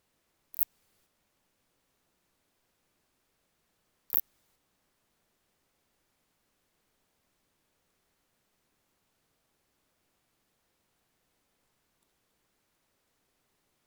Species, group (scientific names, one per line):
Phaneroptera nana
Orthoptera